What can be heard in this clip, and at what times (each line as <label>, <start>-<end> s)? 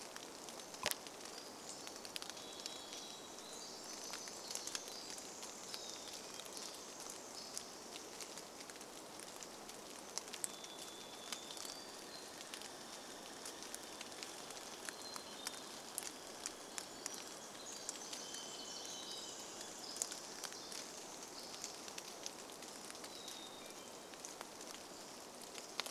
Pacific Wren song, 0-8 s
rain, 0-26 s
Varied Thrush song, 2-4 s
Hermit Thrush song, 4-8 s
Varied Thrush song, 10-12 s
Hermit Thrush song, 10-16 s
Pacific Wren song, 16-22 s
Hermit Thrush song, 18-20 s
Varied Thrush song, 18-20 s
Hermit Thrush song, 22-24 s